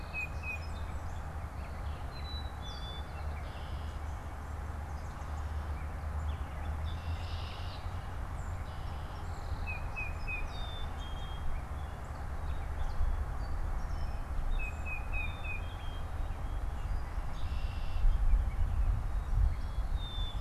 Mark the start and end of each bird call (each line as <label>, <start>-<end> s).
Tufted Titmouse (Baeolophus bicolor), 0.0-0.9 s
Song Sparrow (Melospiza melodia), 0.0-1.2 s
Gray Catbird (Dumetella carolinensis), 0.0-20.4 s
Black-capped Chickadee (Poecile atricapillus), 1.9-3.1 s
White-breasted Nuthatch (Sitta carolinensis), 2.4-4.5 s
Red-winged Blackbird (Agelaius phoeniceus), 3.1-4.2 s
Red-winged Blackbird (Agelaius phoeniceus), 6.6-9.3 s
Song Sparrow (Melospiza melodia), 7.7-11.5 s
Tufted Titmouse (Baeolophus bicolor), 9.5-10.8 s
Black-capped Chickadee (Poecile atricapillus), 10.2-11.7 s
Tufted Titmouse (Baeolophus bicolor), 14.4-15.9 s
Black-capped Chickadee (Poecile atricapillus), 15.1-16.3 s
Red-winged Blackbird (Agelaius phoeniceus), 17.1-18.2 s
Black-capped Chickadee (Poecile atricapillus), 19.7-20.4 s